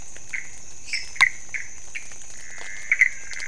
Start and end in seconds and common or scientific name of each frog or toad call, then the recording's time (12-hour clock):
0.0	3.4	Pithecopus azureus
0.8	1.2	lesser tree frog
2.1	3.4	menwig frog
2:00am